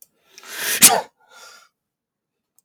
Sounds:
Sneeze